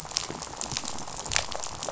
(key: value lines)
label: biophony, rattle
recorder: SoundTrap 500